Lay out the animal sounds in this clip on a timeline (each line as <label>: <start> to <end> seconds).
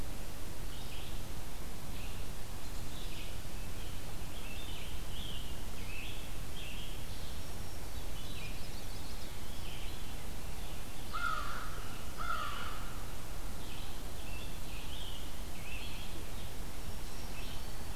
Red-eyed Vireo (Vireo olivaceus): 0.0 to 17.7 seconds
Scarlet Tanager (Piranga olivacea): 3.9 to 7.1 seconds
Black-throated Green Warbler (Setophaga virens): 6.8 to 8.2 seconds
Chestnut-sided Warbler (Setophaga pensylvanica): 8.0 to 9.5 seconds
Veery (Catharus fuscescens): 9.0 to 10.4 seconds
American Crow (Corvus brachyrhynchos): 10.8 to 12.8 seconds
Scarlet Tanager (Piranga olivacea): 13.4 to 16.5 seconds
Black-throated Green Warbler (Setophaga virens): 16.4 to 18.0 seconds